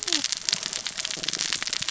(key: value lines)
label: biophony, cascading saw
recorder: SoundTrap 600 or HydroMoth